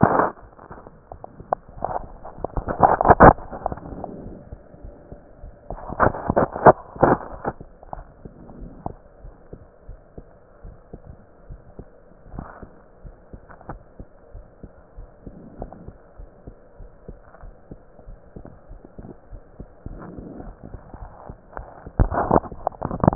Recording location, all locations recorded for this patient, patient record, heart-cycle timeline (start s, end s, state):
aortic valve (AV)
aortic valve (AV)+pulmonary valve (PV)+tricuspid valve (TV)+mitral valve (MV)
#Age: Child
#Sex: Female
#Height: 104.0 cm
#Weight: 20.8 kg
#Pregnancy status: False
#Murmur: Absent
#Murmur locations: nan
#Most audible location: nan
#Systolic murmur timing: nan
#Systolic murmur shape: nan
#Systolic murmur grading: nan
#Systolic murmur pitch: nan
#Systolic murmur quality: nan
#Diastolic murmur timing: nan
#Diastolic murmur shape: nan
#Diastolic murmur grading: nan
#Diastolic murmur pitch: nan
#Diastolic murmur quality: nan
#Outcome: Normal
#Campaign: 2015 screening campaign
0.00	8.90	unannotated
8.90	8.96	S2
8.96	9.22	diastole
9.22	9.34	S1
9.34	9.52	systole
9.52	9.58	S2
9.58	9.87	diastole
9.87	10.00	S1
10.00	10.16	systole
10.16	10.26	S2
10.26	10.64	diastole
10.64	10.70	S1
10.70	10.91	systole
10.92	10.99	S2
10.99	11.47	diastole
11.47	11.60	S1
11.60	11.76	systole
11.76	11.88	S2
11.88	12.30	diastole
12.30	12.46	S1
12.46	12.60	systole
12.60	12.72	S2
12.72	13.03	diastole
13.03	13.12	S1
13.12	13.28	systole
13.28	13.40	S2
13.40	13.69	diastole
13.69	13.80	S1
13.80	13.98	systole
13.98	14.07	S2
14.07	14.31	diastole
14.31	14.42	S1
14.42	14.61	systole
14.61	14.68	S2
14.68	14.96	diastole
14.96	15.07	S1
15.07	15.24	systole
15.24	15.34	S2
15.34	15.58	diastole
15.58	15.70	S1
15.70	15.86	systole
15.86	15.93	S2
15.93	16.18	diastole
16.18	16.28	S1
16.28	16.45	systole
16.45	16.55	S2
16.55	16.79	diastole
16.79	16.89	S1
16.89	17.07	systole
17.07	17.15	S2
17.15	17.43	diastole
17.43	17.53	S1
17.53	17.69	systole
17.69	17.80	S2
17.80	18.07	diastole
18.07	18.18	S1
18.18	18.35	systole
18.35	18.44	S2
18.44	18.70	diastole
18.70	18.78	S1
18.78	18.98	systole
18.98	19.04	S2
19.04	19.31	diastole
19.31	19.41	S1
19.42	19.58	systole
19.58	19.68	S2
19.68	19.88	diastole
19.88	20.00	S1
20.00	20.16	systole
20.16	20.30	S2
20.30	20.46	diastole
20.46	20.56	S1
20.56	20.72	systole
20.72	20.80	S2
20.80	21.00	diastole
21.00	21.06	S1
21.06	23.15	unannotated